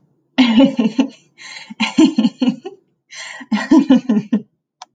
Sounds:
Laughter